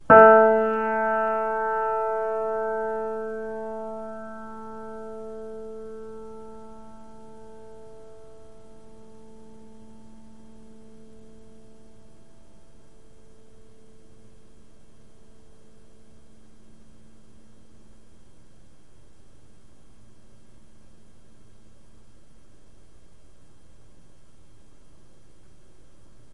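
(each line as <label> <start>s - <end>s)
A piano key is played. 0.0s - 6.2s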